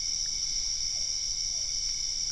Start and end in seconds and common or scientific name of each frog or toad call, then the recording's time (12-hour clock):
0.9	2.3	Physalaemus cuvieri
8:15pm